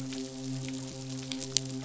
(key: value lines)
label: biophony, midshipman
recorder: SoundTrap 500